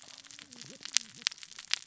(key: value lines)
label: biophony, cascading saw
recorder: SoundTrap 600 or HydroMoth